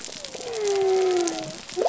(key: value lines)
label: biophony
recorder: SoundTrap 300